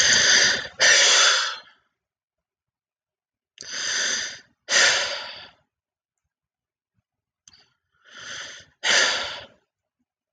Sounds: Sigh